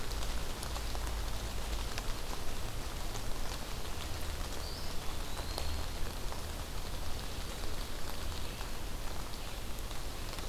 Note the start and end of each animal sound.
4.3s-6.2s: Eastern Wood-Pewee (Contopus virens)

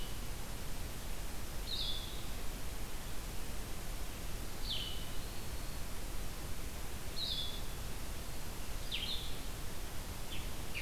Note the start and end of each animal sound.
0.0s-10.8s: Blue-headed Vireo (Vireo solitarius)
4.8s-6.0s: Eastern Wood-Pewee (Contopus virens)
10.1s-10.8s: Scarlet Tanager (Piranga olivacea)

